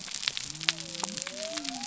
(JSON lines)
{"label": "biophony", "recorder": "SoundTrap 300"}